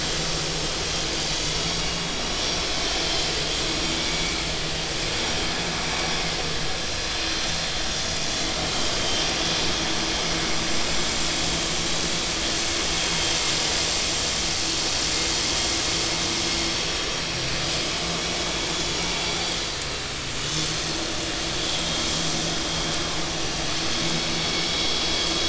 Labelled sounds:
2.7	3.0	vessel noise, 3.0 to 3.2 kHz
4.0	4.2	vessel noise, 2.1 to 2.3 kHz
7.2	7.5	vessel noise, 5.8 to 6.0 kHz
19.3	19.6	vessel noise, 3.2 to 3.6 kHz

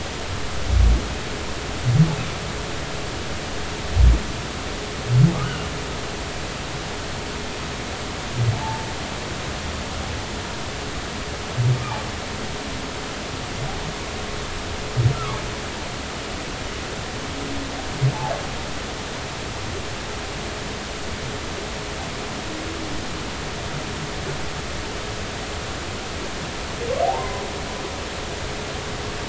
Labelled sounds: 8.5	8.9	humpback whale, 0.80 to 0.96 kHz
15.1	15.4	humpback whale, 1.0 to 1.4 kHz
27.0	27.4	humpback whale, 0.80 to 1.1 kHz

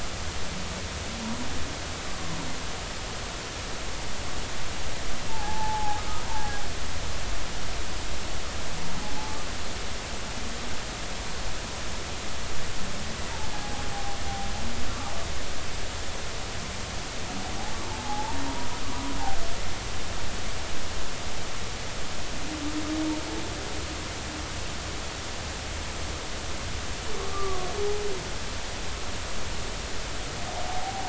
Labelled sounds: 5.3	6.6	humpback whale, 0.80 to 1.7 kHz
13.5	13.8	humpback whale, 0.80 to 0.86 kHz
17.9	18.5	humpback whale, 0.80 to 1.0 kHz
27.2	27.7	humpback whale, 1.1 to 1.3 kHz
30.6	31.0	humpback whale, 0.80 to 0.96 kHz

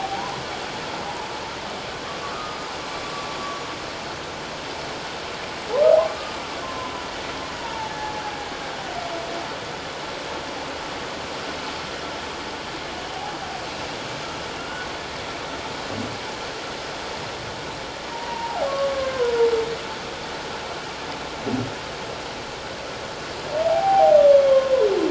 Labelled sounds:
1.0	1.3	humpback whale, 0.81 to 1.1 kHz
2.3	2.6	humpback whale, 1.2 to 1.4 kHz
6.1	6.9	humpback whale, 0.97 to 1.3 kHz
7.6	8.2	humpback whale, 0.81 to 0.97 kHz
14.6	14.9	humpback whale, 1.3 to 1.5 kHz
18.1	19.2	humpback whale, 0.78 to 1.7 kHz
23.7	24.7	humpback whale, 0.78 to 1.1 kHz

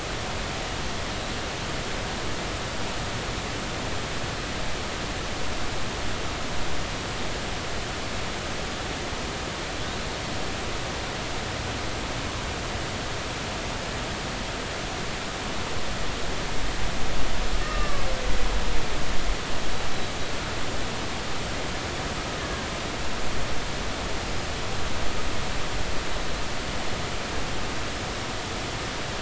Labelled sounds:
17.6	18.0	killer whale, Bigg's (transient), 1.1 to 1.3 kHz
22.4	22.7	killer whale, Bigg's (transient), 1.5 to 1.8 kHz

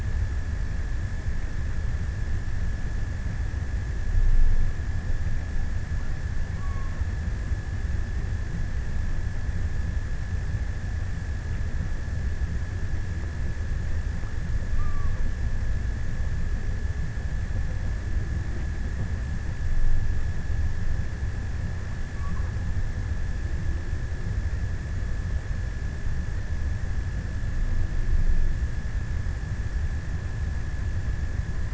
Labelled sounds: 6.0	7.5	killer whale, offshore, 0.75 to 1.4 kHz
14.0	15.9	killer whale, offshore, 0.61 to 1.4 kHz
21.8	22.9	killer whale, offshore, 0.48 to 1.4 kHz

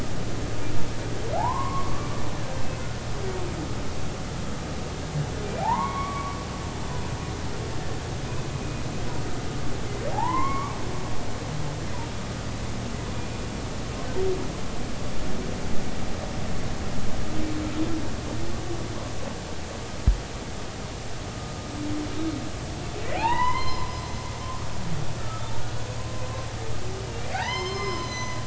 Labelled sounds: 1.4	2.1	humpback whale, 0.80 to 1.2 kHz
5.4	6.4	humpback whale, 0.80 to 3.4 kHz
8.5	8.8	humpback whale, 2.4 to 2.5 kHz
10.1	10.8	humpback whale, 0.80 to 2.3 kHz
23.2	23.9	humpback whale, 0.80 to 5.2 kHz
25.2	25.5	humpback whale, 1.2 to 1.4 kHz
27.3	28.4	humpback whale, 0.80 to 6.3 kHz

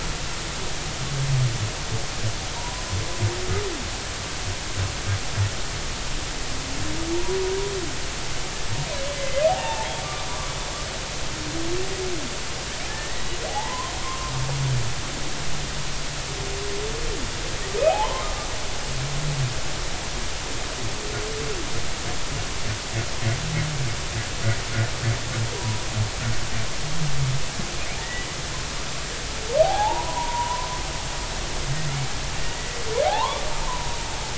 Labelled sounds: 2.5	2.8	humpback whale, 0.90 to 1.1 kHz
7.1	7.4	humpback whale, 0.90 to 0.99 kHz
9.1	9.9	humpback whale, 0.80 to 2.9 kHz
10.3	10.5	humpback whale, 0.93 to 1.2 kHz
12.9	14.3	humpback whale, 0.80 to 2.0 kHz
17.8	18.3	humpback whale, 0.80 to 2.6 kHz
25.5	25.9	humpback whale, 0.90 to 1.0 kHz
28.0	28.3	humpback whale, 1.7 to 2.0 kHz
29.6	30.7	humpback whale, 0.80 to 1.1 kHz
32.4	33.9	humpback whale, 0.80 to 2.0 kHz

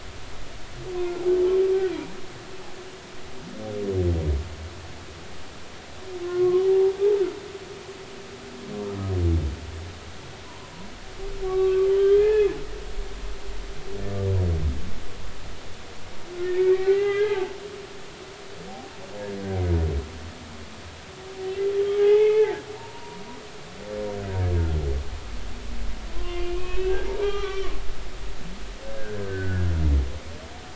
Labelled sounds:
6.2	6.9	humpback whale, 0.80 to 1.2 kHz
10.5	10.7	humpback whale, 0.90 to 1.1 kHz
11.4	12.5	humpback whale, 0.83 to 3.8 kHz
16.4	17.5	humpback whale, 0.80 to 3.4 kHz
22.0	23.6	humpback whale, 0.80 to 2.7 kHz
26.1	27.7	humpback whale, 0.99 to 3.6 kHz
29.2	29.7	humpback whale, 1.4 to 1.8 kHz

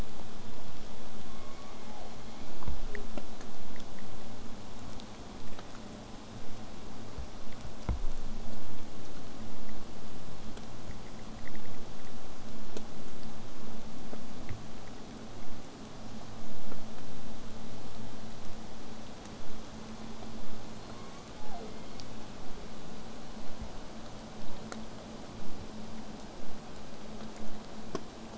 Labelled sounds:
1.2	3.2	killer whale, southern resident, J pod, call S01, 0.23 to 4.6 kHz
20.8	22.8	killer whale, southern resident, J pod, call S01, 0.17 to 5.8 kHz
23.4	28.3	vessel noise, 0 to 8.0 kHz

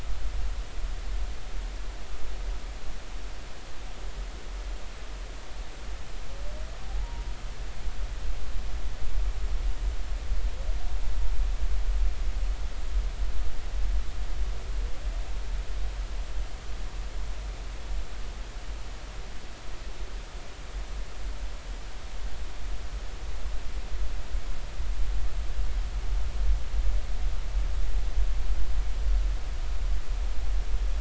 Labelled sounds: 6.9	7.2	humpback whale, 0.80 to 0.99 kHz

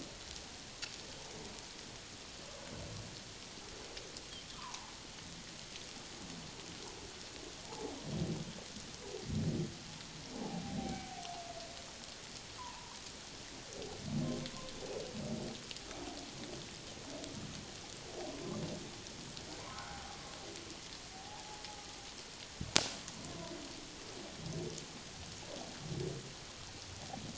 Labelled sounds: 4.5	4.9	humpback whale, 0.78 to 1.3 kHz
7.6	8.0	humpback whale, 0.78 to 1.0 kHz
10.4	11.2	humpback whale, 0.78 to 0.94 kHz
12.6	13.0	humpback whale, 0.84 to 1.2 kHz
19.6	20.2	humpback whale, 0.78 to 1.6 kHz
21.3	21.6	humpback whale, 0.78 to 0.97 kHz

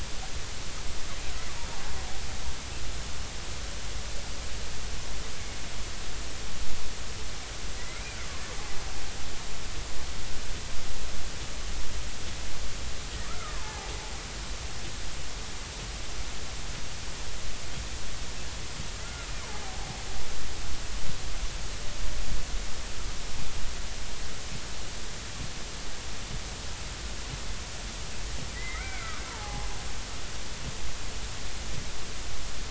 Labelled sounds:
7.8	8.2	killer whale, Bigg's (transient), 1.9 to 2.5 kHz
13.2	13.9	killer whale, Bigg's (transient), 0.80 to 1.4 kHz
28.5	29.7	killer whale, Bigg's (transient), 0.80 to 2.4 kHz

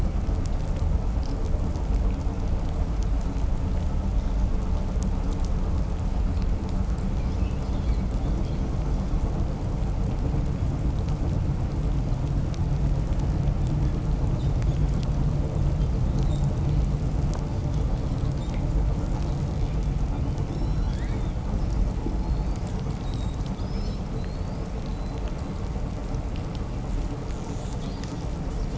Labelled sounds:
20.1	21.5	killer whale, 1.3 to 8.0 kHz
22.2	25.3	killer whale, 2.9 to 8.0 kHz
27.1	28.3	killer whale, 1.4 to 8.0 kHz

